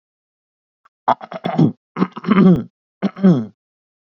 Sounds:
Throat clearing